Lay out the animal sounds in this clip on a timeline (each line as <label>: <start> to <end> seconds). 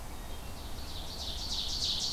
Wood Thrush (Hylocichla mustelina): 0.0 to 0.7 seconds
Ovenbird (Seiurus aurocapilla): 0.2 to 2.1 seconds